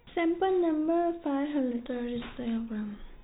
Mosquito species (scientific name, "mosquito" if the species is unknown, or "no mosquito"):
no mosquito